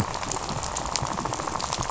{"label": "biophony, rattle", "recorder": "SoundTrap 500"}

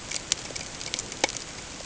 {"label": "ambient", "recorder": "HydroMoth"}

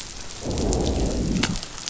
{"label": "biophony, growl", "recorder": "SoundTrap 500"}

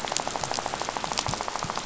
{"label": "biophony, rattle", "recorder": "SoundTrap 500"}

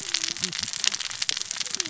{"label": "biophony, cascading saw", "recorder": "SoundTrap 600 or HydroMoth"}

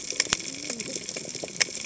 {"label": "biophony, cascading saw", "recorder": "HydroMoth"}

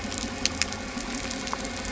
{"label": "anthrophony, boat engine", "recorder": "SoundTrap 300"}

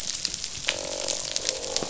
{"label": "biophony, croak", "recorder": "SoundTrap 500"}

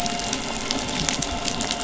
{"label": "anthrophony, boat engine", "recorder": "SoundTrap 500"}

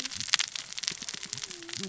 {"label": "biophony, cascading saw", "recorder": "SoundTrap 600 or HydroMoth"}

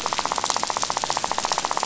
{"label": "biophony, rattle", "recorder": "SoundTrap 500"}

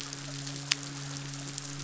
{"label": "biophony, midshipman", "recorder": "SoundTrap 500"}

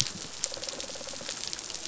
{"label": "biophony", "recorder": "SoundTrap 500"}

